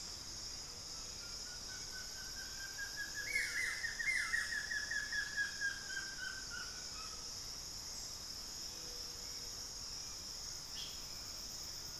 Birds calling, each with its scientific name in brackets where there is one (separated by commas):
Hauxwell's Thrush (Turdus hauxwelli), Buff-throated Woodcreeper (Xiphorhynchus guttatus)